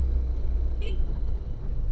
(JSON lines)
{"label": "anthrophony, boat engine", "recorder": "SoundTrap 300"}